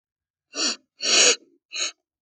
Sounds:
Sniff